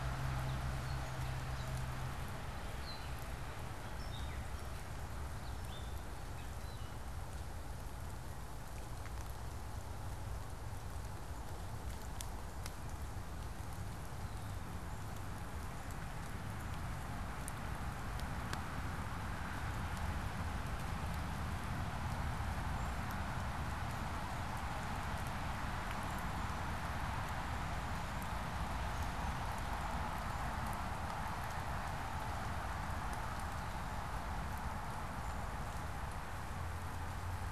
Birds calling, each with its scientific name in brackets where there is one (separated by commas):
unidentified bird